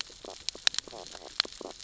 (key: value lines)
label: biophony, stridulation
recorder: SoundTrap 600 or HydroMoth